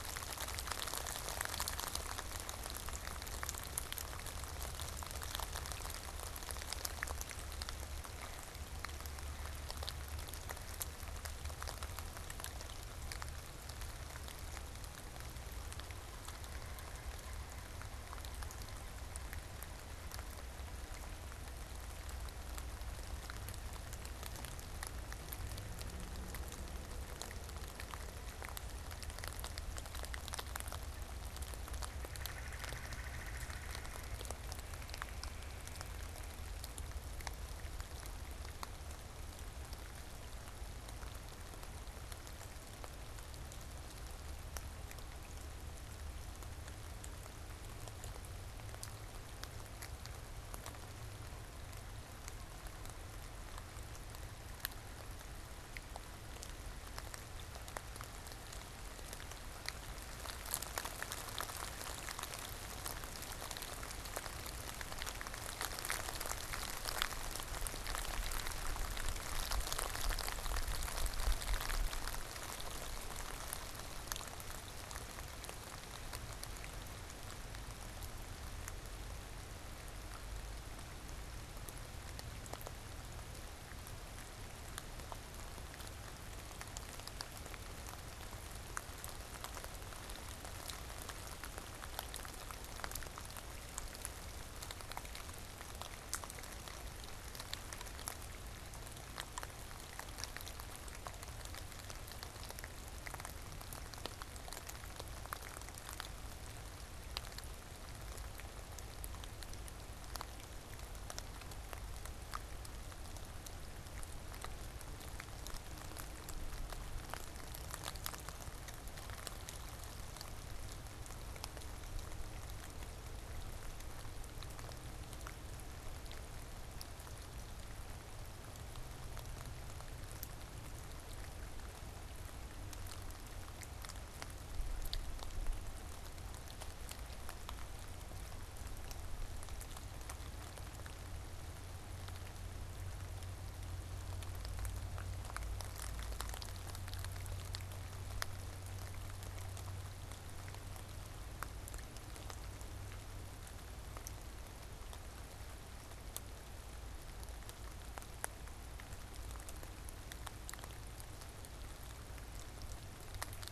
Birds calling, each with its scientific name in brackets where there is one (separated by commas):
Pileated Woodpecker (Dryocopus pileatus), Red-bellied Woodpecker (Melanerpes carolinus)